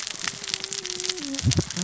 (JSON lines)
{"label": "biophony, cascading saw", "recorder": "SoundTrap 600 or HydroMoth"}